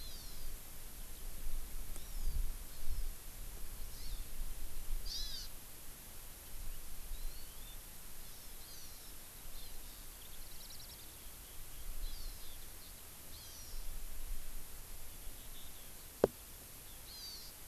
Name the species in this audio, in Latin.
Chlorodrepanis virens, Alauda arvensis